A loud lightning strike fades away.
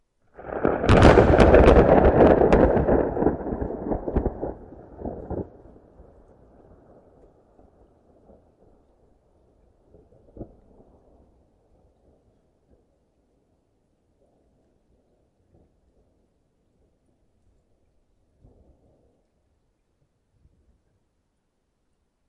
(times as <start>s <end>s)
0.4s 5.5s